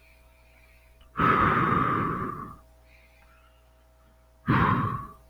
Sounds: Sigh